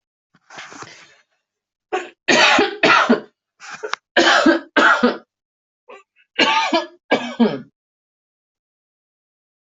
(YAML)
expert_labels:
- quality: good
  cough_type: dry
  dyspnea: false
  wheezing: false
  stridor: false
  choking: false
  congestion: false
  nothing: true
  diagnosis: lower respiratory tract infection
  severity: mild
age: 51
gender: female
respiratory_condition: false
fever_muscle_pain: true
status: COVID-19